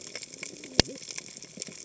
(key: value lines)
label: biophony, cascading saw
recorder: HydroMoth